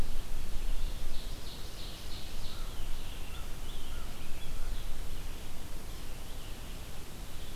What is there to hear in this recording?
Ovenbird, American Crow, American Robin, Red-eyed Vireo